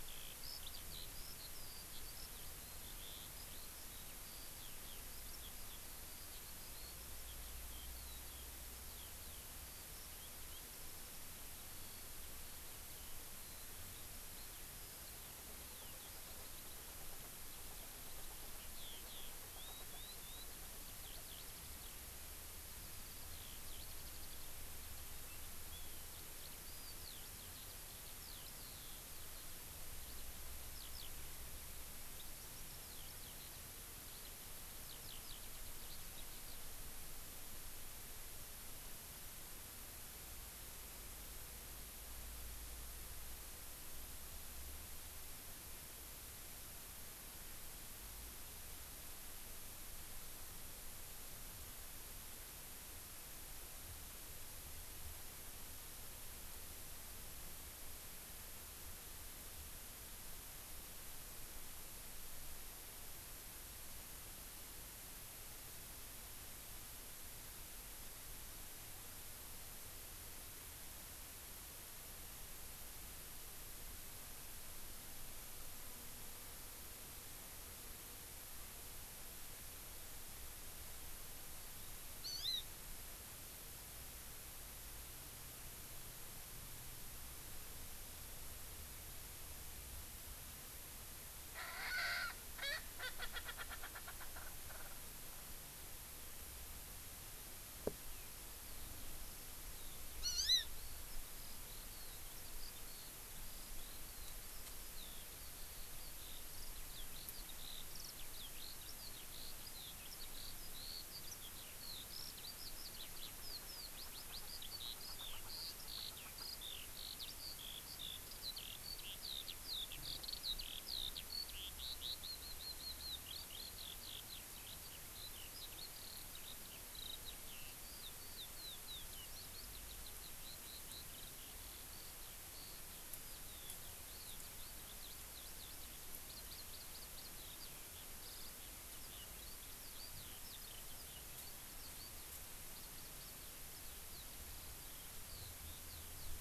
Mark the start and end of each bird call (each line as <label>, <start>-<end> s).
Eurasian Skylark (Alauda arvensis), 0.0-16.9 s
Eurasian Skylark (Alauda arvensis), 18.5-36.7 s
Hawaii Amakihi (Chlorodrepanis virens), 82.2-82.7 s
Erckel's Francolin (Pternistis erckelii), 91.5-95.0 s
Hawaii Amakihi (Chlorodrepanis virens), 100.2-100.7 s
Eurasian Skylark (Alauda arvensis), 100.8-146.4 s